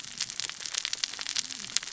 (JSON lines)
{"label": "biophony, cascading saw", "recorder": "SoundTrap 600 or HydroMoth"}